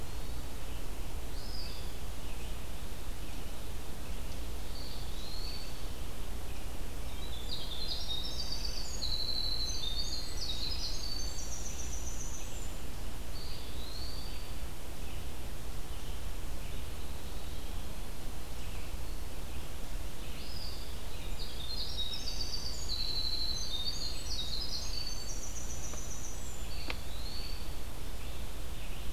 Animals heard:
Hermit Thrush (Catharus guttatus), Eastern Wood-Pewee (Contopus virens), Winter Wren (Troglodytes hiemalis)

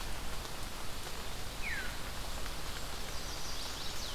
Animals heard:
Veery (Catharus fuscescens), Chestnut-sided Warbler (Setophaga pensylvanica)

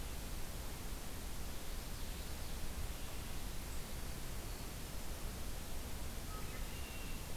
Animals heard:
Red-winged Blackbird (Agelaius phoeniceus), Common Yellowthroat (Geothlypis trichas)

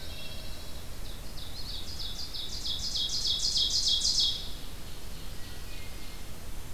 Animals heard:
Pine Warbler (Setophaga pinus), Ovenbird (Seiurus aurocapilla), Wood Thrush (Hylocichla mustelina)

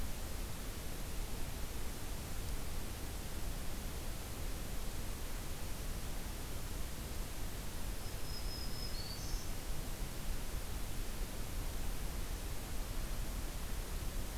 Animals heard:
Black-throated Green Warbler (Setophaga virens)

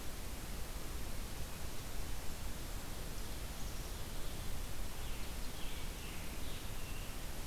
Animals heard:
Black-capped Chickadee (Poecile atricapillus), Scarlet Tanager (Piranga olivacea)

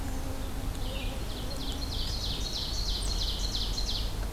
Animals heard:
Ovenbird (Seiurus aurocapilla)

